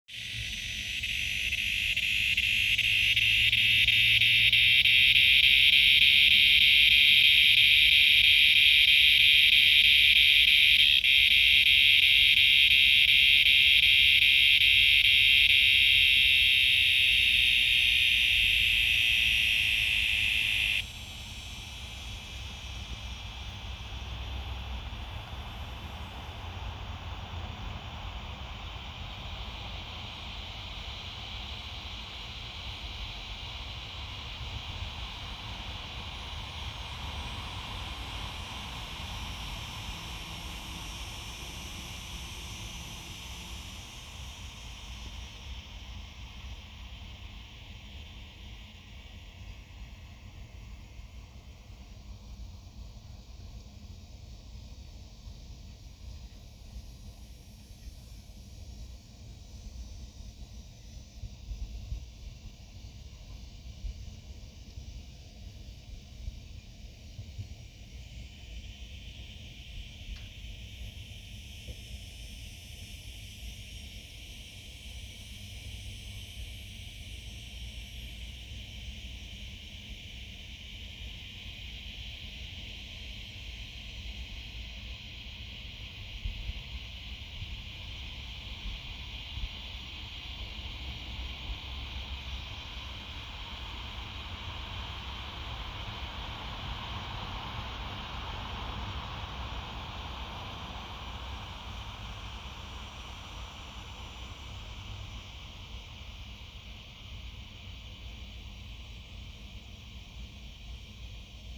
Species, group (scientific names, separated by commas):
Diceroprocta grossa, Cicadidae